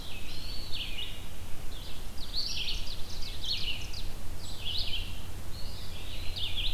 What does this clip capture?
Eastern Wood-Pewee, Red-eyed Vireo, Ovenbird